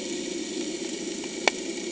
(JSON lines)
{"label": "anthrophony, boat engine", "recorder": "HydroMoth"}